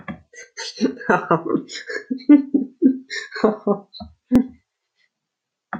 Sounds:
Laughter